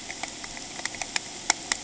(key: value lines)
label: ambient
recorder: HydroMoth